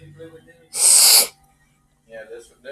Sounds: Sniff